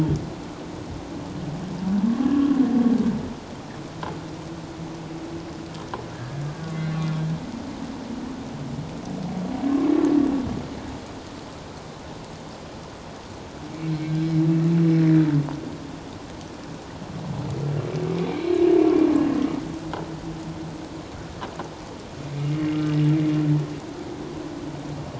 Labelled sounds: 6.1	7.1	humpback whale, 1.1 to 4.2 kHz
13.7	14.0	humpback whale, 2.2 to 2.4 kHz
18.3	18.6	humpback whale, 2.2 to 4.3 kHz

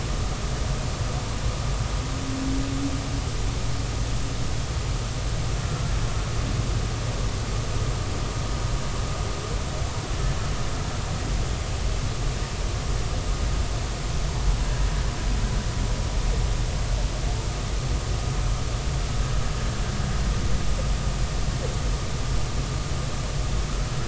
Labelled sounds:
5.6	5.9	humpback whale, 1.3 to 1.4 kHz

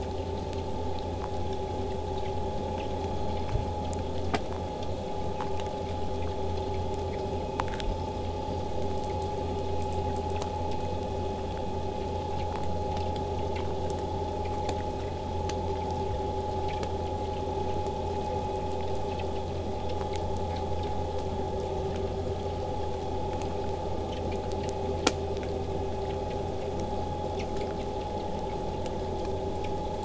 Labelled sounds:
7.8	8.8	killer whale, southern resident, whistle, 4.5 to 5.4 kHz

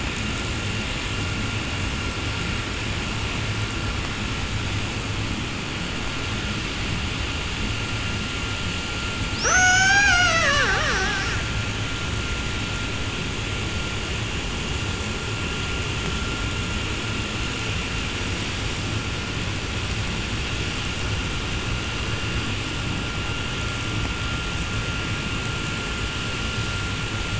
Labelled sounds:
9.3	11.9	killer whale, 0.07 to 8.0 kHz

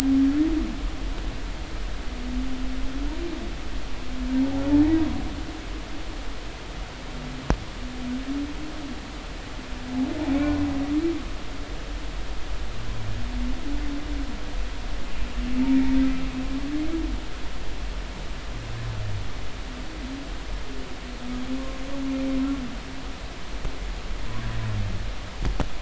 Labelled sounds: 10.2	10.6	humpback whale, 2.2 to 2.4 kHz

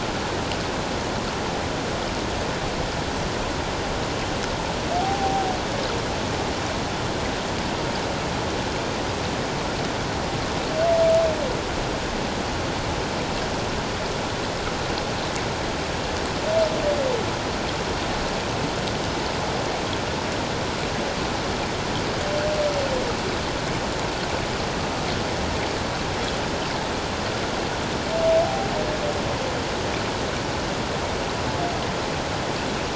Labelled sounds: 5.0	5.5	humpback whale, 0.78 to 0.88 kHz
28.4	28.7	humpback whale, 0.78 to 0.84 kHz

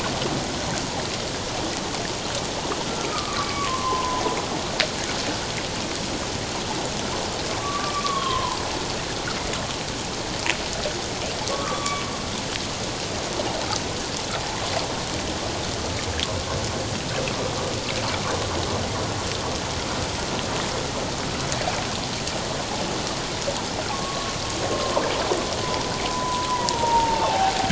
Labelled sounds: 3.1	4.2	humpback whale, 0.84 to 1.5 kHz
7.5	8.6	humpback whale, 0.81 to 3.4 kHz
11.5	12.0	humpback whale, 1.0 to 1.3 kHz
23.9	24.4	humpback whale, 1.0 to 1.2 kHz
26.0	27.7	humpback whale, 0.78 to 1.1 kHz

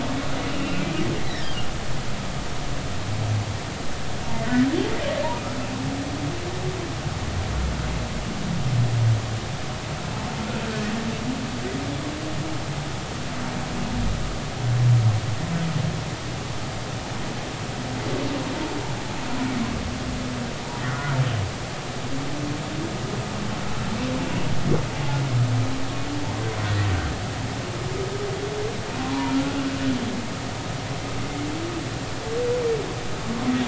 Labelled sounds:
0.5	0.8	humpback whale, 2.7 to 2.8 kHz
1.2	1.5	humpback whale, 1.8 to 2.1 kHz
20.9	21.2	humpback whale, 1.2 to 1.5 kHz
29.3	29.7	humpback whale, 1.3 to 1.4 kHz

